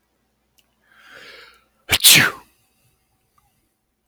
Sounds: Sneeze